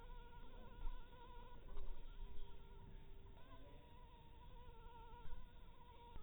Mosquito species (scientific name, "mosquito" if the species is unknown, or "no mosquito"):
mosquito